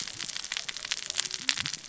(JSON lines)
{"label": "biophony, cascading saw", "recorder": "SoundTrap 600 or HydroMoth"}